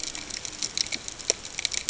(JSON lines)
{"label": "ambient", "recorder": "HydroMoth"}